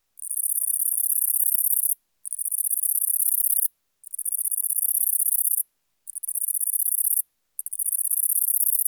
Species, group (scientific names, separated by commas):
Calliphona koenigi, Orthoptera